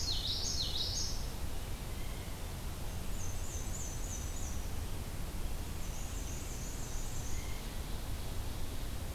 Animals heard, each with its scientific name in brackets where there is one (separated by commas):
Black-and-white Warbler (Mniotilta varia), Common Yellowthroat (Geothlypis trichas), Blue Jay (Cyanocitta cristata)